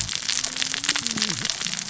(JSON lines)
{"label": "biophony, cascading saw", "recorder": "SoundTrap 600 or HydroMoth"}